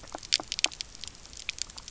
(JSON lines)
{"label": "biophony, pulse", "recorder": "SoundTrap 300"}